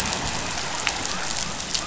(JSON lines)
{"label": "biophony", "recorder": "SoundTrap 500"}